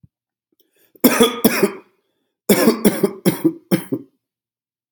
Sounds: Cough